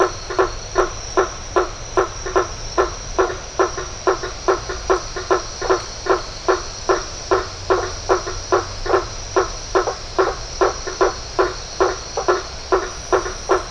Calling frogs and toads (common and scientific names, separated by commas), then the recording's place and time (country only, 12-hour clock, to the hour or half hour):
blacksmith tree frog (Boana faber)
Brazil, ~7pm